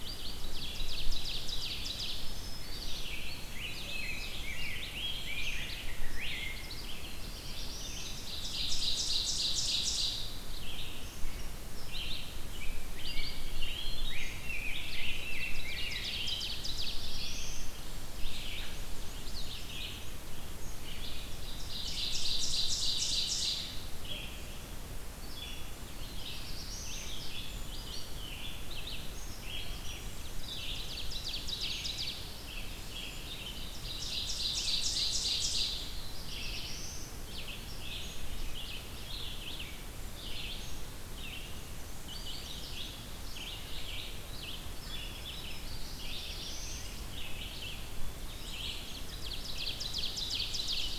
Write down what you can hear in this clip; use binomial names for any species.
Vireo olivaceus, Seiurus aurocapilla, Setophaga virens, Pheucticus ludovicianus, Contopus virens, Mniotilta varia, Setophaga caerulescens